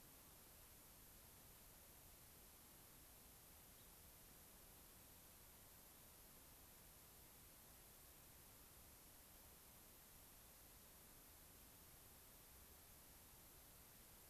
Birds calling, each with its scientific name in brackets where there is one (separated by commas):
unidentified bird